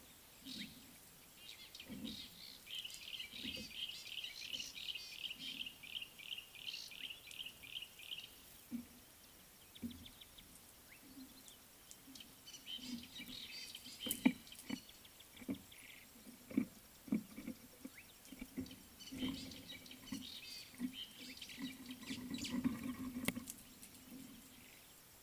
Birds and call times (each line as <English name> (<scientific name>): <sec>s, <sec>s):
Fork-tailed Drongo (Dicrurus adsimilis): 4.0s, 13.6s, 20.5s
Yellow-breasted Apalis (Apalis flavida): 5.9s
White-browed Sparrow-Weaver (Plocepasser mahali): 22.1s